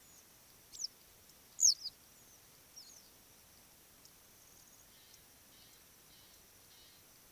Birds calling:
Western Yellow Wagtail (Motacilla flava)

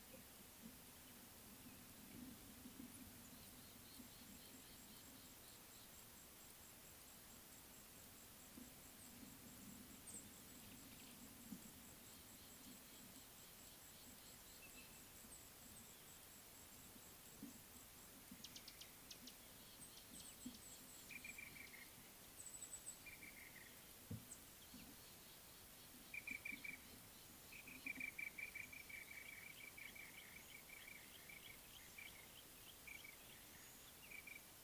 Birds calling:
Mouse-colored Penduline-Tit (Anthoscopus musculus), Black-throated Barbet (Tricholaema melanocephala)

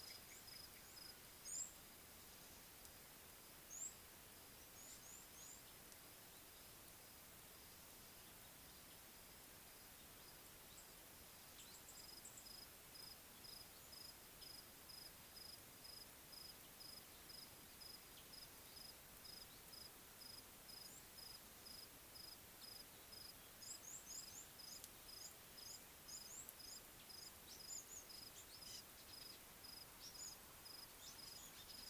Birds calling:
African Gray Flycatcher (Bradornis microrhynchus), Red-cheeked Cordonbleu (Uraeginthus bengalus)

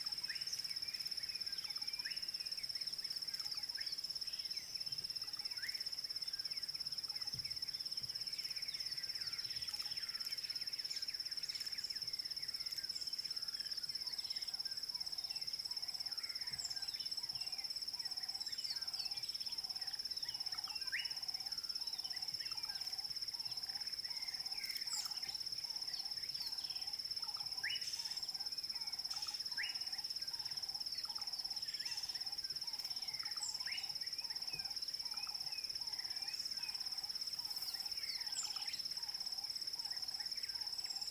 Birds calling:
Klaas's Cuckoo (Chrysococcyx klaas), Ring-necked Dove (Streptopelia capicola), Slate-colored Boubou (Laniarius funebris)

